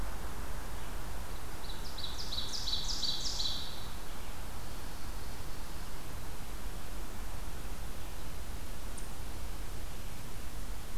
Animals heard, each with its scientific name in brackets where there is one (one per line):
Ovenbird (Seiurus aurocapilla)